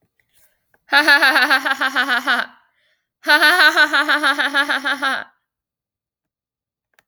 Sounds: Laughter